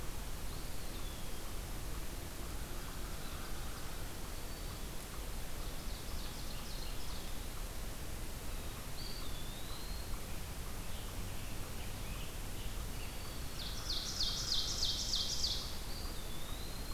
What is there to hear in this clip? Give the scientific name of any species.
Contopus virens, Corvus brachyrhynchos, Setophaga virens, Seiurus aurocapilla, Piranga olivacea